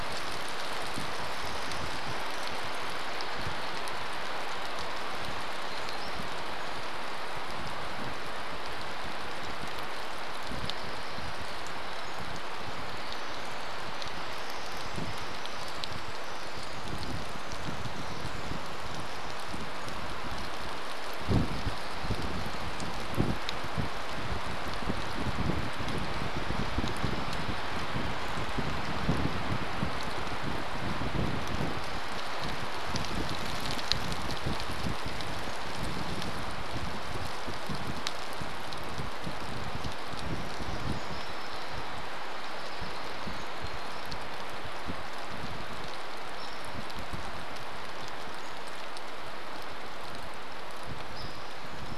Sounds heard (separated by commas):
Pacific Wren song, Hairy Woodpecker call, warbler song, rain